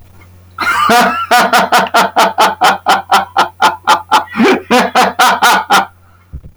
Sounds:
Laughter